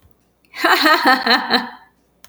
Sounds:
Laughter